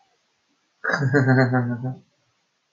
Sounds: Laughter